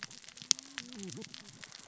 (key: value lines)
label: biophony, cascading saw
recorder: SoundTrap 600 or HydroMoth